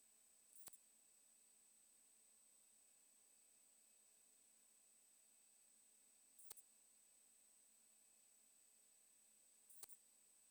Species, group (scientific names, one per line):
Poecilimon macedonicus
Orthoptera